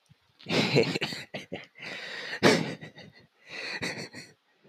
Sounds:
Laughter